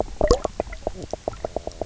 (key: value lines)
label: biophony, knock croak
recorder: SoundTrap 300